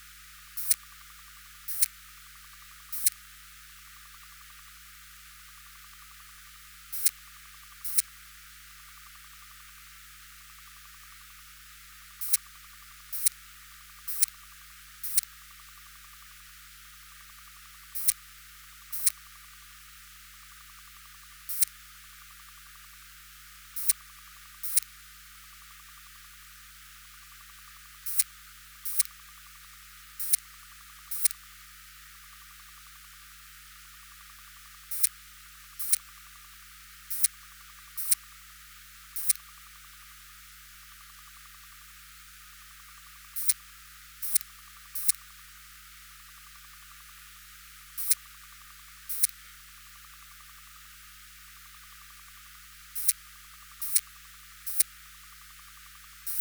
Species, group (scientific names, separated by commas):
Poecilimon elegans, Orthoptera